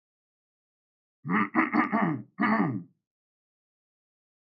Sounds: Throat clearing